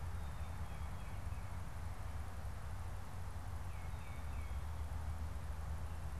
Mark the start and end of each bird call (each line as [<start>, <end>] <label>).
[0.15, 6.20] Tufted Titmouse (Baeolophus bicolor)